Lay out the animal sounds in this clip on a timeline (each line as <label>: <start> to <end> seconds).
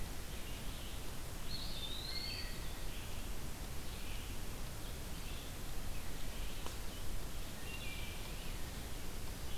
Red-eyed Vireo (Vireo olivaceus): 0.0 to 9.6 seconds
Eastern Wood-Pewee (Contopus virens): 1.3 to 2.7 seconds
Wood Thrush (Hylocichla mustelina): 2.0 to 2.9 seconds
Wood Thrush (Hylocichla mustelina): 7.5 to 8.4 seconds